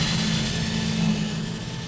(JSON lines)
{"label": "anthrophony, boat engine", "recorder": "SoundTrap 500"}